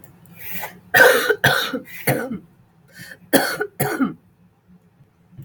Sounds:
Cough